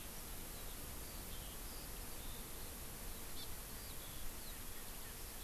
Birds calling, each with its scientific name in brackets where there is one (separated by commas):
Eurasian Skylark (Alauda arvensis), Hawaii Amakihi (Chlorodrepanis virens)